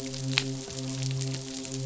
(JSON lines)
{"label": "biophony, midshipman", "recorder": "SoundTrap 500"}